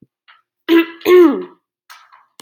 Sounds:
Throat clearing